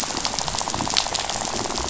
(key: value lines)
label: biophony, rattle
recorder: SoundTrap 500